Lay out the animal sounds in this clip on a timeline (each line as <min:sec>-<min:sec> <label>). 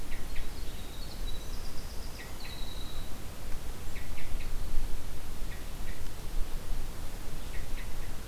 0:00.0-0:00.6 Hermit Thrush (Catharus guttatus)
0:00.1-0:03.2 Winter Wren (Troglodytes hiemalis)
0:02.0-0:02.6 Hermit Thrush (Catharus guttatus)
0:03.8-0:04.5 Hermit Thrush (Catharus guttatus)
0:05.5-0:06.0 Hermit Thrush (Catharus guttatus)
0:07.4-0:08.2 Hermit Thrush (Catharus guttatus)